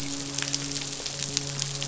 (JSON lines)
{"label": "biophony, midshipman", "recorder": "SoundTrap 500"}